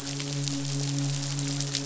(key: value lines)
label: biophony, midshipman
recorder: SoundTrap 500